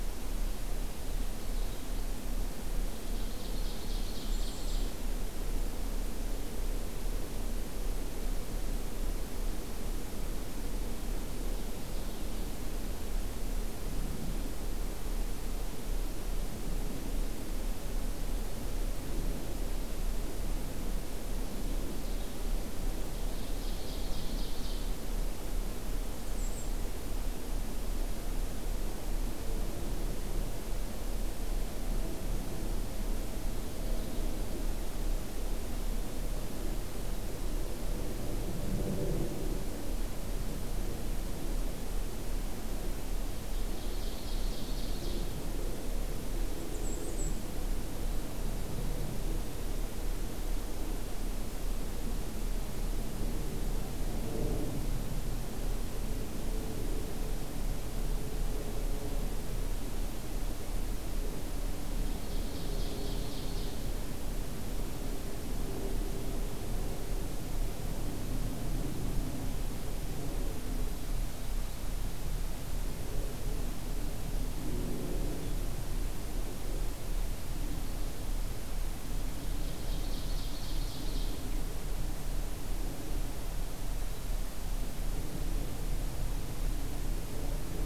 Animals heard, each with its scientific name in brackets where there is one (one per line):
Bay-breasted Warbler (Setophaga castanea)
Ovenbird (Seiurus aurocapilla)
Purple Finch (Haemorhous purpureus)